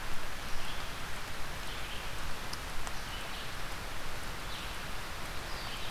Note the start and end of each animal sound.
[0.49, 5.91] Red-eyed Vireo (Vireo olivaceus)

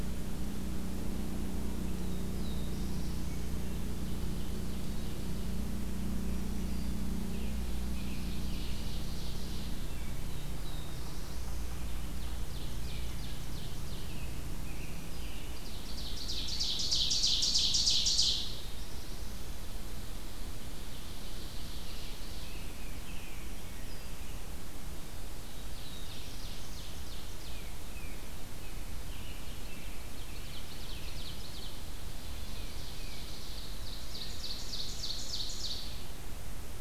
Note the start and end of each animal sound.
[1.71, 3.66] Black-throated Blue Warbler (Setophaga caerulescens)
[4.02, 5.59] Ovenbird (Seiurus aurocapilla)
[7.09, 9.07] American Robin (Turdus migratorius)
[7.74, 9.88] Ovenbird (Seiurus aurocapilla)
[10.09, 11.94] Black-throated Blue Warbler (Setophaga caerulescens)
[12.06, 14.14] Ovenbird (Seiurus aurocapilla)
[12.71, 13.38] Wood Thrush (Hylocichla mustelina)
[13.80, 15.77] American Robin (Turdus migratorius)
[14.59, 15.54] Black-throated Green Warbler (Setophaga virens)
[15.50, 18.60] Ovenbird (Seiurus aurocapilla)
[18.09, 19.48] Black-throated Blue Warbler (Setophaga caerulescens)
[20.38, 22.35] Ovenbird (Seiurus aurocapilla)
[21.79, 23.48] American Robin (Turdus migratorius)
[23.25, 24.35] Black-throated Green Warbler (Setophaga virens)
[24.98, 26.96] Black-throated Blue Warbler (Setophaga caerulescens)
[25.22, 27.69] Ovenbird (Seiurus aurocapilla)
[27.41, 28.28] Tufted Titmouse (Baeolophus bicolor)
[28.93, 31.47] American Robin (Turdus migratorius)
[29.39, 36.16] Ovenbird (Seiurus aurocapilla)
[32.45, 33.27] Tufted Titmouse (Baeolophus bicolor)

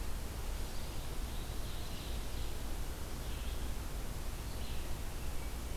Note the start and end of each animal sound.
[0.00, 5.76] Red-eyed Vireo (Vireo olivaceus)
[0.89, 1.88] Eastern Wood-Pewee (Contopus virens)
[1.07, 2.60] Ovenbird (Seiurus aurocapilla)
[5.21, 5.76] Wood Thrush (Hylocichla mustelina)

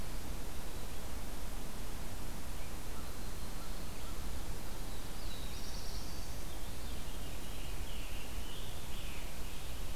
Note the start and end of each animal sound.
[2.58, 3.98] Yellow-rumped Warbler (Setophaga coronata)
[4.61, 6.52] Black-throated Blue Warbler (Setophaga caerulescens)
[6.34, 7.73] Veery (Catharus fuscescens)
[7.33, 9.96] Scarlet Tanager (Piranga olivacea)

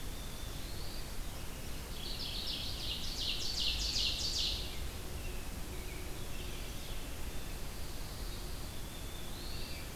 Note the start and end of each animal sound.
[0.00, 1.28] Black-throated Blue Warbler (Setophaga caerulescens)
[1.84, 4.74] Ovenbird (Seiurus aurocapilla)
[3.60, 6.53] American Robin (Turdus migratorius)
[6.05, 7.13] Veery (Catharus fuscescens)
[7.23, 9.96] Black-throated Blue Warbler (Setophaga caerulescens)

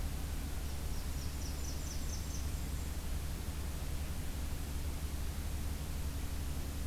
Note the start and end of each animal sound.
[0.41, 2.91] Blackburnian Warbler (Setophaga fusca)

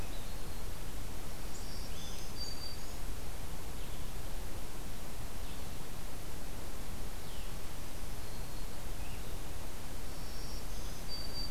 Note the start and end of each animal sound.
[0.00, 0.66] Black-throated Green Warbler (Setophaga virens)
[1.27, 3.10] Black-throated Green Warbler (Setophaga virens)
[5.15, 11.51] Blue-headed Vireo (Vireo solitarius)
[9.80, 11.51] Black-throated Green Warbler (Setophaga virens)

